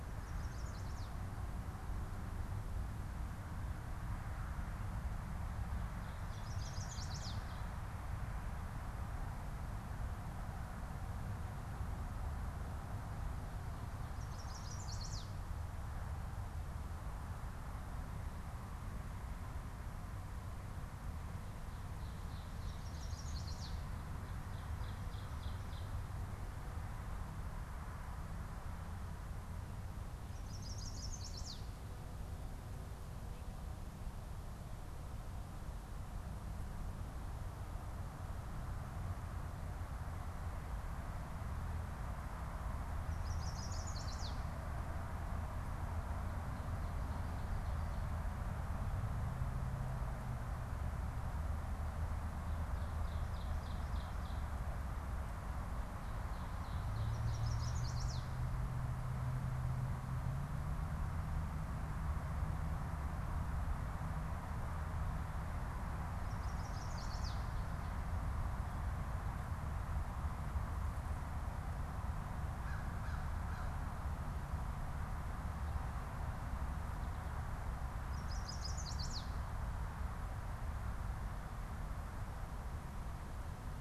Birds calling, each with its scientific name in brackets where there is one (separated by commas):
Ovenbird (Seiurus aurocapilla), Chestnut-sided Warbler (Setophaga pensylvanica), American Crow (Corvus brachyrhynchos)